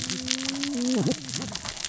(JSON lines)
{"label": "biophony, cascading saw", "recorder": "SoundTrap 600 or HydroMoth"}